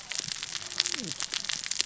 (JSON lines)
{"label": "biophony, cascading saw", "recorder": "SoundTrap 600 or HydroMoth"}